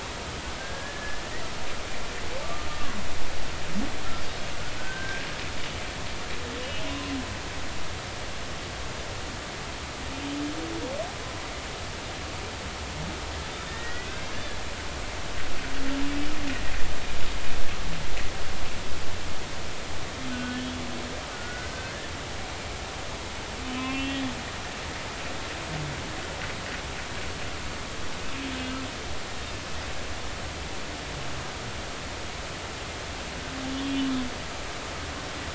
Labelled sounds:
0.6	1.2	humpback whale, 1.5 to 1.8 kHz
2.4	2.7	humpback whale, 1.1 to 1.2 kHz
4.8	5.2	humpback whale, 1.5 to 1.7 kHz
6.9	7.1	humpback whale, 0.96 to 1.1 kHz
13.5	14.1	humpback whale, 1.8 to 3.8 kHz
20.3	22.1	humpback whale, 1.4 to 3.3 kHz
23.7	24.3	humpback whale, 0.99 to 3.6 kHz
33.8	34.0	humpback whale, 3.2 to 3.4 kHz

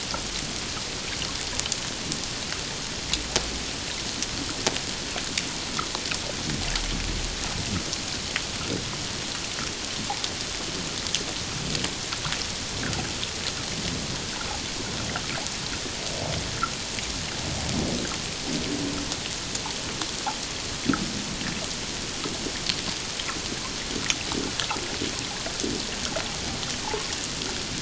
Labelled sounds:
26.8	27.1	humpback whale, 0.81 to 1.1 kHz

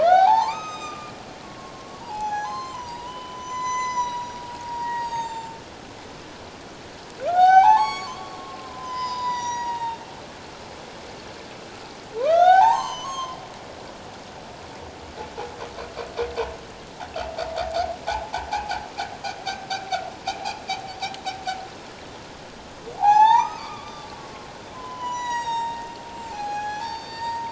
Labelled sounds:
0.0	1.1	humpback whale, 0.78 to 7.6 kHz
1.4	5.6	humpback whale, 0.78 to 7.9 kHz
7.3	10.1	humpback whale, 0.78 to 7.9 kHz
12.2	13.4	humpback whale, 0.78 to 7.6 kHz
18.2	18.8	humpback whale, 0.78 to 1.0 kHz
23.0	24.1	humpback whale, 0.78 to 7.3 kHz
24.7	27.4	humpback whale, 0.78 to 8.0 kHz

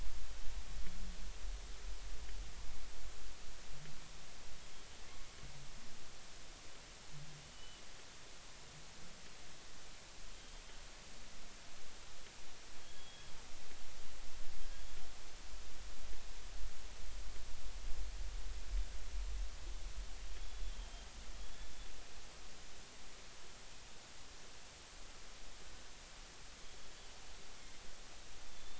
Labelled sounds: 7.5	7.8	killer whale, northern resident, G clan, GG subclan, 2.8 to 3.1 kHz
10.3	10.6	killer whale, northern resident, G clan, GG subclan, 3.1 to 3.3 kHz
12.8	13.3	killer whale, northern resident, G clan, GG subclan, 3.1 to 3.4 kHz
20.4	21.1	killer whale, northern resident, G clan, GG subclan, 3.1 to 3.5 kHz
28.5	28.7	killer whale, northern resident, G clan, GG subclan, 3.4 to 3.6 kHz

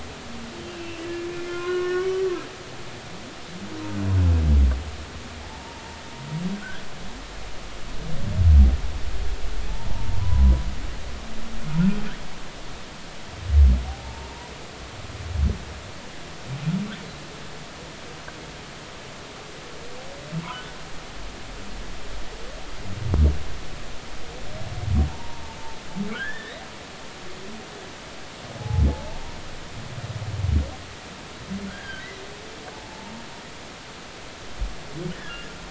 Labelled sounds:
0.7	1.0	humpback whale, 2.6 to 2.9 kHz
1.5	2.3	humpback whale, 0.99 to 5.6 kHz
5.5	6.9	humpback whale, 0.83 to 1.7 kHz
10.2	10.6	humpback whale, 0.93 to 1.1 kHz
14.0	14.5	humpback whale, 0.83 to 1.0 kHz
25.1	26.6	humpback whale, 0.86 to 3.6 kHz
28.6	29.4	humpback whale, 0.80 to 0.99 kHz
31.7	32.1	humpback whale, 1.4 to 3.4 kHz
32.7	33.1	humpback whale, 0.80 to 0.99 kHz
35.1	35.5	humpback whale, 1.6 to 1.9 kHz

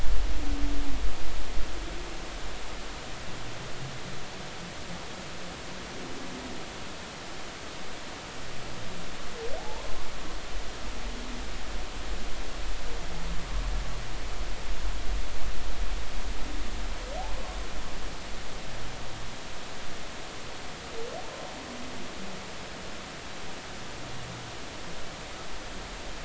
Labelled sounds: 9.6	9.9	humpback whale, 0.80 to 1.1 kHz

